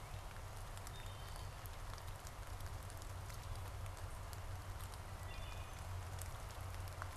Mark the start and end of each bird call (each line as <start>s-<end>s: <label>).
0.8s-1.7s: Wood Thrush (Hylocichla mustelina)
4.9s-6.1s: Wood Thrush (Hylocichla mustelina)